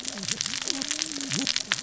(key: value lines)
label: biophony, cascading saw
recorder: SoundTrap 600 or HydroMoth